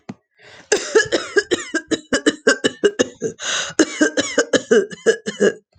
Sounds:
Cough